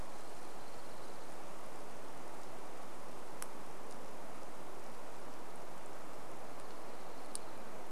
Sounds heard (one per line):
Orange-crowned Warbler song